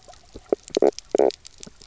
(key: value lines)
label: biophony, knock croak
recorder: SoundTrap 300